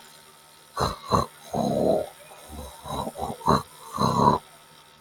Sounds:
Throat clearing